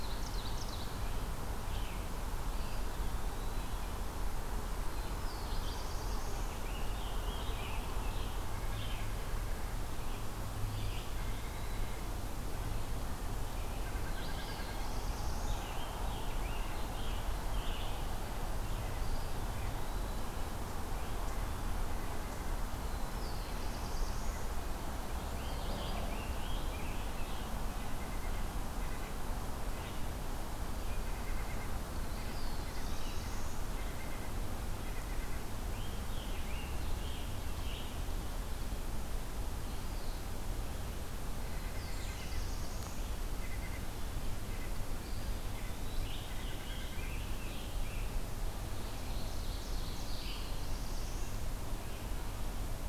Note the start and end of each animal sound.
[0.00, 1.24] Ovenbird (Seiurus aurocapilla)
[0.00, 18.04] Red-eyed Vireo (Vireo olivaceus)
[2.38, 3.99] Eastern Wood-Pewee (Contopus virens)
[4.88, 6.73] Black-throated Blue Warbler (Setophaga caerulescens)
[6.61, 7.92] American Robin (Turdus migratorius)
[10.55, 11.97] Eastern Wood-Pewee (Contopus virens)
[13.62, 15.00] White-breasted Nuthatch (Sitta carolinensis)
[13.90, 15.74] Black-throated Blue Warbler (Setophaga caerulescens)
[14.83, 17.32] American Robin (Turdus migratorius)
[18.87, 20.37] Eastern Wood-Pewee (Contopus virens)
[23.04, 24.47] Black-throated Blue Warbler (Setophaga caerulescens)
[25.16, 50.59] Red-eyed Vireo (Vireo olivaceus)
[25.23, 27.50] American Robin (Turdus migratorius)
[27.63, 35.41] White-breasted Nuthatch (Sitta carolinensis)
[31.69, 33.87] Black-throated Blue Warbler (Setophaga caerulescens)
[35.71, 37.83] American Robin (Turdus migratorius)
[39.55, 40.25] Eastern Wood-Pewee (Contopus virens)
[41.23, 47.11] White-breasted Nuthatch (Sitta carolinensis)
[41.29, 43.09] Black-throated Blue Warbler (Setophaga caerulescens)
[44.92, 46.16] Eastern Wood-Pewee (Contopus virens)
[45.84, 48.13] American Robin (Turdus migratorius)
[48.65, 50.43] Ovenbird (Seiurus aurocapilla)
[49.90, 51.50] Black-throated Blue Warbler (Setophaga caerulescens)

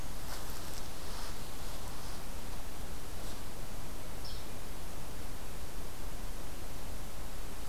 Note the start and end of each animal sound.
[4.13, 4.47] Hairy Woodpecker (Dryobates villosus)

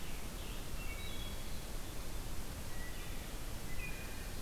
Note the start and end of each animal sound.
[0.52, 1.58] Wood Thrush (Hylocichla mustelina)
[2.72, 4.42] Wood Thrush (Hylocichla mustelina)

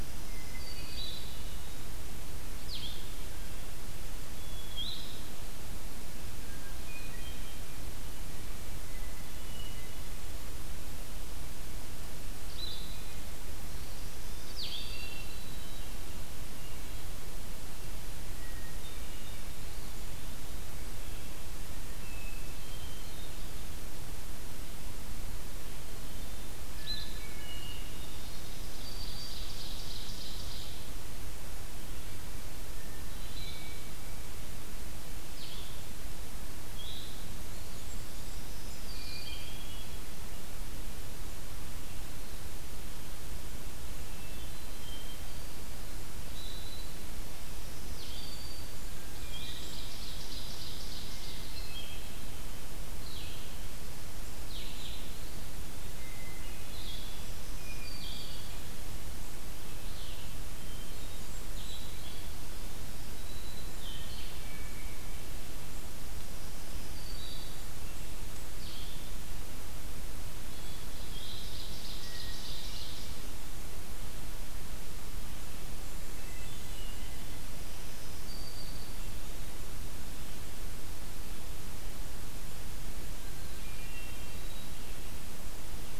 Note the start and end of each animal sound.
[0.00, 1.27] Black-throated Green Warbler (Setophaga virens)
[0.00, 14.98] Blue-headed Vireo (Vireo solitarius)
[0.09, 1.62] Hermit Thrush (Catharus guttatus)
[4.19, 5.21] Hermit Thrush (Catharus guttatus)
[6.31, 7.84] Hermit Thrush (Catharus guttatus)
[8.76, 10.36] Hermit Thrush (Catharus guttatus)
[13.61, 15.36] Black-throated Green Warbler (Setophaga virens)
[14.87, 15.97] Hermit Thrush (Catharus guttatus)
[16.41, 17.35] Hermit Thrush (Catharus guttatus)
[18.28, 19.54] Hermit Thrush (Catharus guttatus)
[19.45, 20.90] Eastern Wood-Pewee (Contopus virens)
[21.74, 23.42] Hermit Thrush (Catharus guttatus)
[26.54, 27.40] Blue-headed Vireo (Vireo solitarius)
[26.77, 28.32] Hermit Thrush (Catharus guttatus)
[27.99, 29.44] Black-throated Green Warbler (Setophaga virens)
[28.50, 30.90] Ovenbird (Seiurus aurocapilla)
[32.76, 34.13] Hermit Thrush (Catharus guttatus)
[33.27, 39.34] Blue-headed Vireo (Vireo solitarius)
[37.13, 38.94] Blackburnian Warbler (Setophaga fusca)
[37.19, 38.60] Eastern Wood-Pewee (Contopus virens)
[38.94, 39.98] Hermit Thrush (Catharus guttatus)
[44.10, 45.57] Hermit Thrush (Catharus guttatus)
[46.22, 47.00] Eastern Wood-Pewee (Contopus virens)
[47.38, 48.88] Black-throated Green Warbler (Setophaga virens)
[47.72, 73.11] Blue-headed Vireo (Vireo solitarius)
[48.42, 49.97] Blackburnian Warbler (Setophaga fusca)
[48.95, 51.83] Ovenbird (Seiurus aurocapilla)
[48.97, 50.01] Hermit Thrush (Catharus guttatus)
[51.11, 52.36] Hermit Thrush (Catharus guttatus)
[55.90, 56.94] Hermit Thrush (Catharus guttatus)
[56.95, 58.49] Black-throated Green Warbler (Setophaga virens)
[57.49, 58.51] Hermit Thrush (Catharus guttatus)
[60.44, 61.92] Blackburnian Warbler (Setophaga fusca)
[60.50, 61.38] Hermit Thrush (Catharus guttatus)
[62.52, 63.83] Black-throated Green Warbler (Setophaga virens)
[63.79, 65.11] Hermit Thrush (Catharus guttatus)
[66.18, 67.70] Black-throated Green Warbler (Setophaga virens)
[67.08, 68.55] Blackburnian Warbler (Setophaga fusca)
[70.44, 71.33] Hermit Thrush (Catharus guttatus)
[71.09, 73.28] Ovenbird (Seiurus aurocapilla)
[75.20, 77.03] Blackburnian Warbler (Setophaga fusca)
[75.92, 77.38] Hermit Thrush (Catharus guttatus)
[77.56, 79.20] Black-throated Green Warbler (Setophaga virens)
[83.12, 84.84] Hermit Thrush (Catharus guttatus)

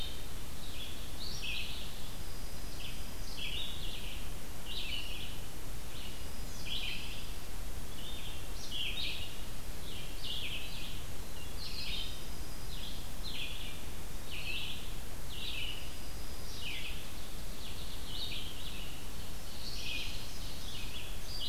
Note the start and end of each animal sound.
[0.00, 21.49] Red-eyed Vireo (Vireo olivaceus)
[1.72, 3.38] Dark-eyed Junco (Junco hyemalis)
[5.84, 7.49] Dark-eyed Junco (Junco hyemalis)
[11.45, 13.14] Dark-eyed Junco (Junco hyemalis)
[15.16, 16.98] Dark-eyed Junco (Junco hyemalis)
[17.28, 18.14] American Goldfinch (Spinus tristis)
[18.90, 20.82] Ovenbird (Seiurus aurocapilla)
[19.56, 21.09] Dark-eyed Junco (Junco hyemalis)

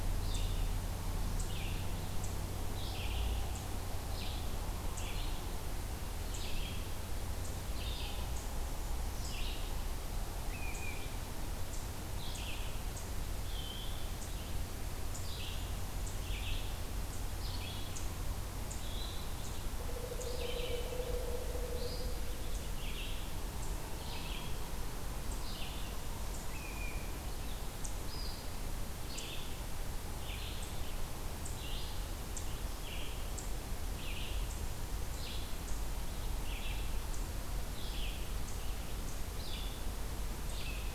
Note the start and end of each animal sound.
[0.00, 18.11] Red-eyed Vireo (Vireo olivaceus)
[10.40, 11.07] unidentified call
[13.27, 14.19] Eastern Wood-Pewee (Contopus virens)
[18.67, 19.32] Eastern Wood-Pewee (Contopus virens)
[19.23, 40.94] Red-eyed Vireo (Vireo olivaceus)
[19.70, 22.34] Pileated Woodpecker (Dryocopus pileatus)
[26.42, 27.11] unidentified call

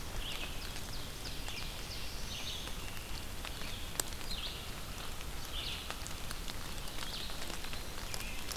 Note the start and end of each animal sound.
[0.00, 8.57] Red-eyed Vireo (Vireo olivaceus)
[0.01, 2.19] Ovenbird (Seiurus aurocapilla)
[1.21, 2.97] Black-throated Blue Warbler (Setophaga caerulescens)

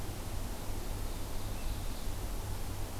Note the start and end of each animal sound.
[0.00, 2.99] Blue-headed Vireo (Vireo solitarius)
[0.41, 2.06] Ovenbird (Seiurus aurocapilla)

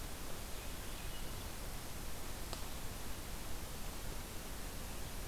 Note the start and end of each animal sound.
[0.38, 1.56] Swainson's Thrush (Catharus ustulatus)

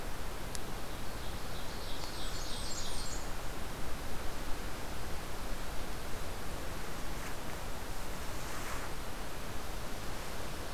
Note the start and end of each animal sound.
[0.64, 3.29] Ovenbird (Seiurus aurocapilla)
[1.81, 3.34] Blackburnian Warbler (Setophaga fusca)

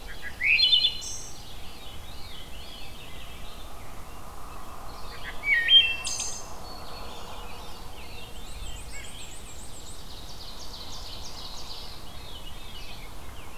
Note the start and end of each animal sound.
[0.00, 0.65] Ovenbird (Seiurus aurocapilla)
[0.00, 1.55] Wood Thrush (Hylocichla mustelina)
[0.00, 13.57] Red-eyed Vireo (Vireo olivaceus)
[1.06, 3.42] Veery (Catharus fuscescens)
[5.05, 6.69] Wood Thrush (Hylocichla mustelina)
[5.72, 7.43] Black-throated Green Warbler (Setophaga virens)
[7.01, 8.88] Veery (Catharus fuscescens)
[8.23, 10.04] Black-and-white Warbler (Mniotilta varia)
[8.80, 9.15] White-breasted Nuthatch (Sitta carolinensis)
[9.37, 12.02] Ovenbird (Seiurus aurocapilla)
[11.41, 13.32] Veery (Catharus fuscescens)
[12.75, 13.57] Rose-breasted Grosbeak (Pheucticus ludovicianus)

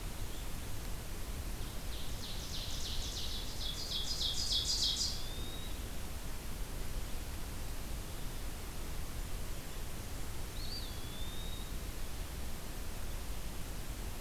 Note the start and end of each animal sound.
[1.55, 5.38] Ovenbird (Seiurus aurocapilla)
[4.62, 5.81] Eastern Wood-Pewee (Contopus virens)
[10.56, 11.75] Eastern Wood-Pewee (Contopus virens)

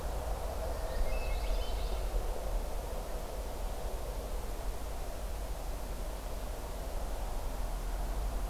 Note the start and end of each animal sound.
[0.56, 2.09] Common Yellowthroat (Geothlypis trichas)
[0.67, 2.08] Hermit Thrush (Catharus guttatus)

